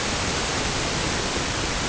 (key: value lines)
label: ambient
recorder: HydroMoth